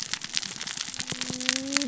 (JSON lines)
{"label": "biophony, cascading saw", "recorder": "SoundTrap 600 or HydroMoth"}